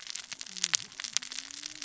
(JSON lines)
{"label": "biophony, cascading saw", "recorder": "SoundTrap 600 or HydroMoth"}